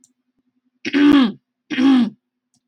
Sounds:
Throat clearing